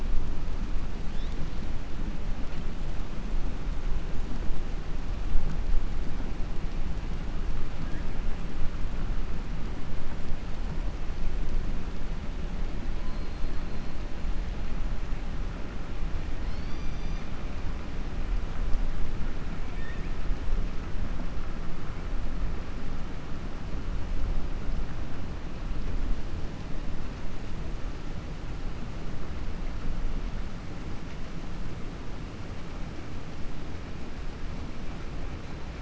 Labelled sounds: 19.6	20.1	killer whale, 1.7 to 3.7 kHz

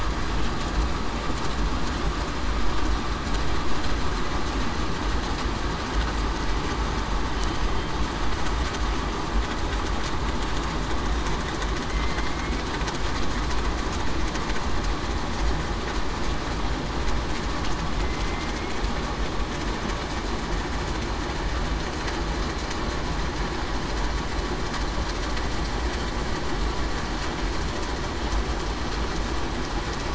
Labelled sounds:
12.2	12.5	killer whale, southern resident, 2.1 to 2.2 kHz

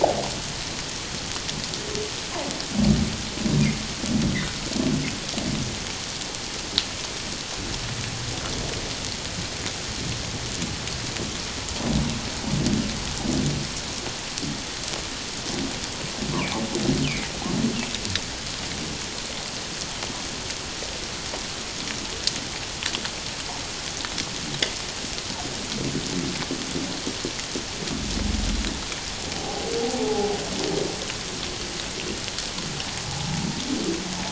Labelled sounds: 29.3	30.3	humpback whale, 0.78 to 0.91 kHz
33.1	33.5	humpback whale, 0.78 to 0.94 kHz

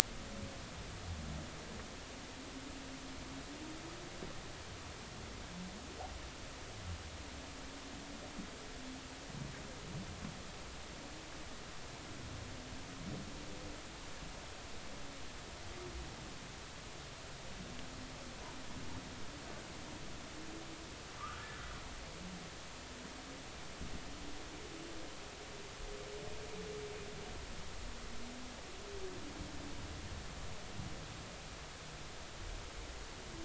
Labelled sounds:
21.2	21.5	humpback whale, 1.1 to 1.5 kHz

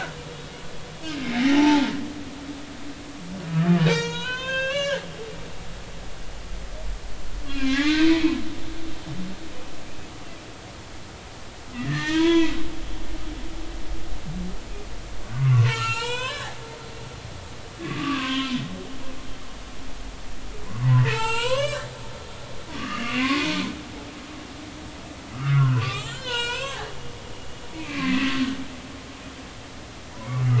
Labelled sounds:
1.5	1.8	humpback whale, 0.80 to 0.96 kHz
3.9	5.0	humpback whale, 0.86 to 7.2 kHz
7.5	8.4	humpback whale, 1.0 to 2.8 kHz
11.8	12.6	humpback whale, 0.86 to 3.4 kHz
15.3	16.6	humpback whale, 0.86 to 8.0 kHz
17.8	18.6	humpback whale, 0.96 to 3.3 kHz
20.8	21.9	humpback whale, 0.83 to 7.9 kHz
22.7	23.5	humpback whale, 1.1 to 2.9 kHz
25.3	26.9	humpback whale, 0.90 to 7.7 kHz
27.7	28.3	humpback whale, 1.9 to 2.7 kHz

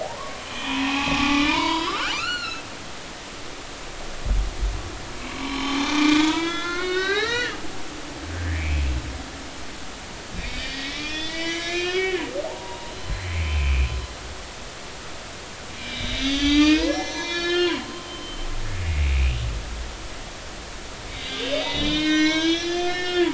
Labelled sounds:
0.0	2.6	humpback whale, 0.80 to 5.2 kHz
5.3	7.6	humpback whale, 0.80 to 6.7 kHz
8.5	8.8	humpback whale, 2.1 to 2.6 kHz
10.4	13.9	humpback whale, 0.80 to 7.4 kHz
15.9	17.8	humpback whale, 0.90 to 6.7 kHz
18.1	19.2	humpback whale, 2.1 to 3.1 kHz
21.1	23.3	humpback whale, 0.90 to 6.2 kHz

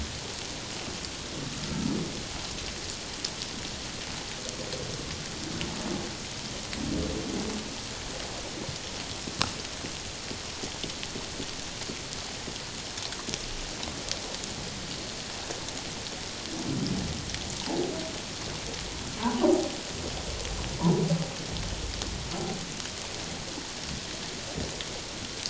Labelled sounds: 19.2	19.5	humpback whale, 0.81 to 1.2 kHz

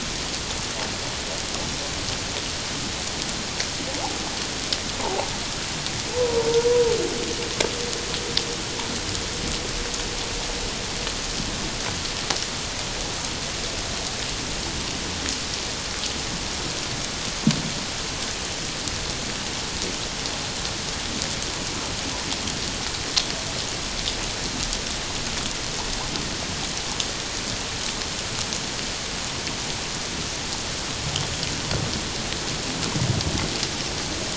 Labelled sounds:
5.0	5.3	humpback whale, 0.78 to 1.1 kHz
6.1	6.5	humpback whale, 0.84 to 1.0 kHz

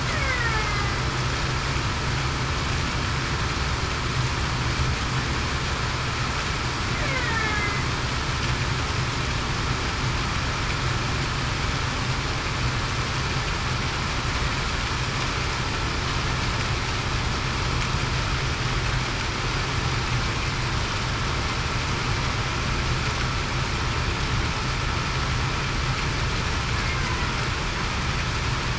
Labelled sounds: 0.1	0.6	killer whale, Bigg's (transient), 1.7 to 2.3 kHz
7.1	7.7	killer whale, Bigg's (transient), 1.6 to 2.2 kHz

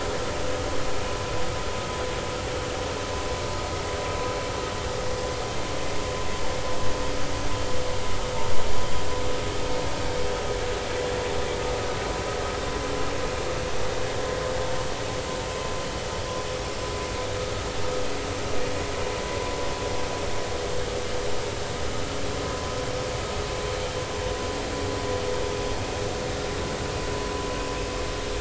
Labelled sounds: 22.4	22.7	vessel noise, 0.99 to 1.1 kHz

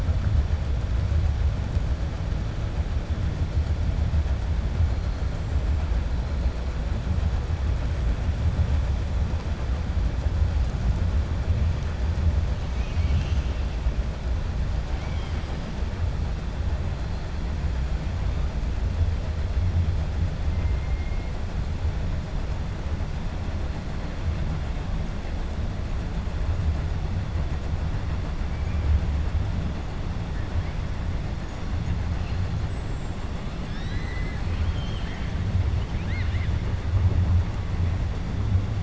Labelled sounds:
14.9	15.5	killer whale, 1.3 to 3.4 kHz
33.6	35.3	killer whale, 1.4 to 7.9 kHz
35.7	36.5	killer whale, 1.5 to 4.4 kHz

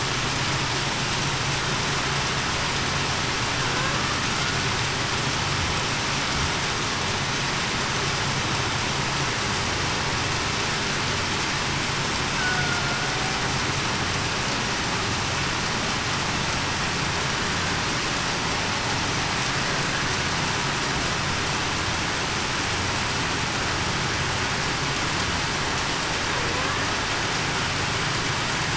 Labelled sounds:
12.6	13.1	killer whale, Bigg's (transient), 1.4 to 1.5 kHz

